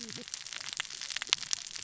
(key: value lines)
label: biophony, cascading saw
recorder: SoundTrap 600 or HydroMoth